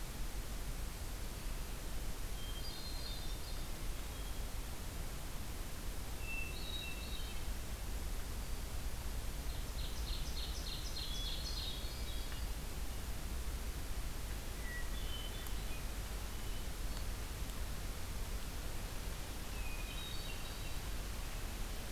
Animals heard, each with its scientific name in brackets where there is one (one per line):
Ovenbird (Seiurus aurocapilla)
Hermit Thrush (Catharus guttatus)